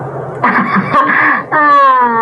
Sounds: Laughter